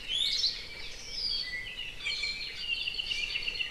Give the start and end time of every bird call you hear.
0.0s-0.5s: Iiwi (Drepanis coccinea)
0.1s-3.7s: Apapane (Himatione sanguinea)
0.2s-0.6s: Hawaii Creeper (Loxops mana)
1.3s-2.6s: Iiwi (Drepanis coccinea)

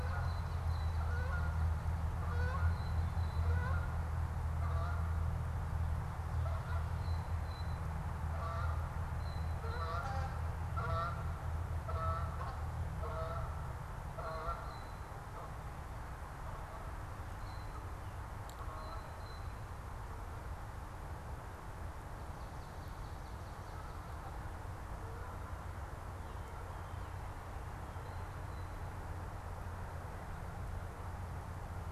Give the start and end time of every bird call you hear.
0.0s-19.6s: Canada Goose (Branta canadensis)
0.0s-19.9s: Blue Jay (Cyanocitta cristata)

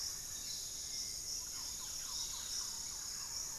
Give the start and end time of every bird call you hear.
0.0s-3.6s: Barred Forest-Falcon (Micrastur ruficollis)
0.0s-3.6s: Dusky-capped Greenlet (Pachysylvia hypoxantha)
0.0s-3.6s: Piratic Flycatcher (Legatus leucophaius)
0.0s-3.6s: Thrush-like Wren (Campylorhynchus turdinus)

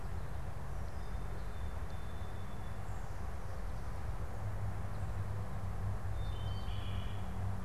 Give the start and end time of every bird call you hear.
0.5s-2.8s: Song Sparrow (Melospiza melodia)
6.0s-7.6s: Wood Thrush (Hylocichla mustelina)

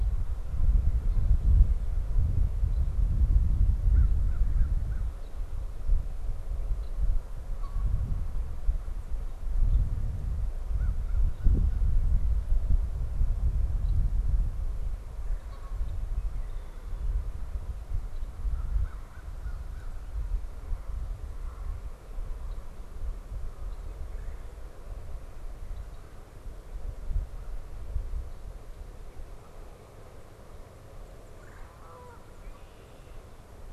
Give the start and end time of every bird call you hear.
3.5s-5.2s: American Crow (Corvus brachyrhynchos)
7.2s-8.4s: Canada Goose (Branta canadensis)
10.5s-12.2s: American Crow (Corvus brachyrhynchos)
14.9s-15.8s: Red-bellied Woodpecker (Melanerpes carolinus)
15.1s-16.0s: Canada Goose (Branta canadensis)
18.3s-20.2s: American Crow (Corvus brachyrhynchos)
21.1s-22.1s: Canada Goose (Branta canadensis)
23.8s-24.9s: Red-bellied Woodpecker (Melanerpes carolinus)
31.2s-31.9s: Red-bellied Woodpecker (Melanerpes carolinus)
31.6s-32.4s: Canada Goose (Branta canadensis)
32.2s-33.4s: Red-winged Blackbird (Agelaius phoeniceus)

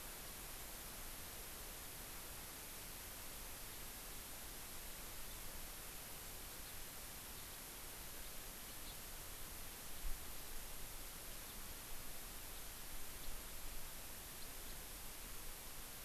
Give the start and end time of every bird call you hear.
11.5s-11.6s: House Finch (Haemorhous mexicanus)
13.2s-13.3s: Warbling White-eye (Zosterops japonicus)
14.4s-14.5s: House Finch (Haemorhous mexicanus)

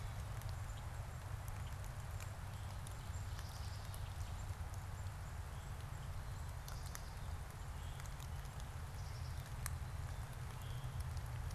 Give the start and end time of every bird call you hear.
2.6s-7.7s: Black-capped Chickadee (Poecile atricapillus)
7.6s-8.2s: Veery (Catharus fuscescens)
8.8s-9.9s: Black-capped Chickadee (Poecile atricapillus)
10.2s-11.2s: Veery (Catharus fuscescens)

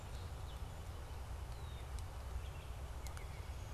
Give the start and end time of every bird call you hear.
1.4s-1.9s: Red-winged Blackbird (Agelaius phoeniceus)
2.3s-3.7s: Baltimore Oriole (Icterus galbula)

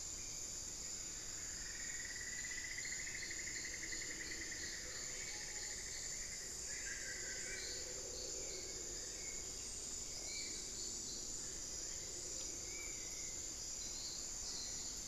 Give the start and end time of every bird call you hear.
0.0s-13.3s: Spot-winged Antshrike (Pygiptila stellaris)
0.0s-15.1s: Hauxwell's Thrush (Turdus hauxwelli)
1.1s-6.5s: Cinnamon-throated Woodcreeper (Dendrexetastes rufigula)
5.0s-5.9s: Screaming Piha (Lipaugus vociferans)
6.6s-7.9s: Solitary Black Cacique (Cacicus solitarius)
8.0s-9.8s: Long-billed Woodcreeper (Nasica longirostris)

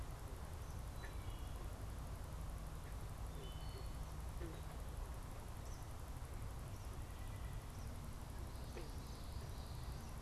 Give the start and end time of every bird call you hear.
0.7s-1.6s: Wood Thrush (Hylocichla mustelina)
3.2s-4.0s: Wood Thrush (Hylocichla mustelina)
5.5s-8.0s: Eastern Kingbird (Tyrannus tyrannus)
9.0s-10.1s: Common Yellowthroat (Geothlypis trichas)

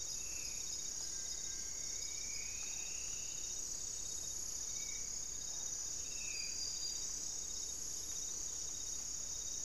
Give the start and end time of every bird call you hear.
0.0s-5.1s: Spot-winged Antshrike (Pygiptila stellaris)
0.0s-6.7s: Black-spotted Bare-eye (Phlegopsis nigromaculata)
0.9s-3.7s: Striped Woodcreeper (Xiphorhynchus obsoletus)
1.0s-6.2s: unidentified bird

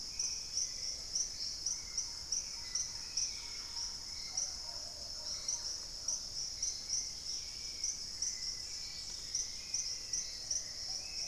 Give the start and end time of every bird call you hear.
0.0s-11.3s: Hauxwell's Thrush (Turdus hauxwelli)
0.0s-11.3s: Plumbeous Pigeon (Patagioenas plumbea)
1.4s-6.5s: Thrush-like Wren (Campylorhynchus turdinus)
2.9s-9.9s: Dusky-capped Greenlet (Pachysylvia hypoxantha)
5.0s-5.9s: unidentified bird
8.3s-11.3s: Black-faced Antthrush (Formicarius analis)

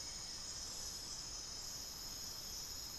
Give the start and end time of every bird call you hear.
0.0s-0.6s: Hauxwell's Thrush (Turdus hauxwelli)
0.0s-2.1s: Buff-throated Woodcreeper (Xiphorhynchus guttatus)

